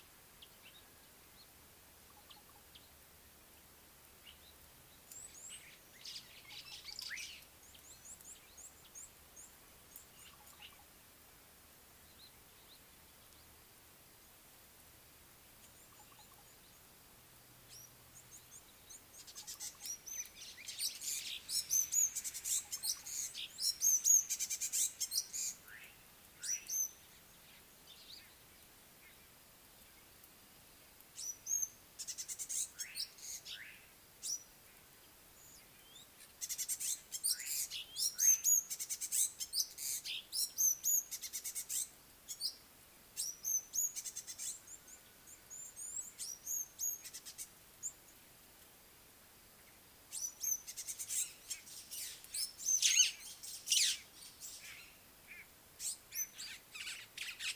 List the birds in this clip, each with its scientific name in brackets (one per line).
African Gray Flycatcher (Bradornis microrhynchus)
Red-cheeked Cordonbleu (Uraeginthus bengalus)
Slate-colored Boubou (Laniarius funebris)
White-browed Sparrow-Weaver (Plocepasser mahali)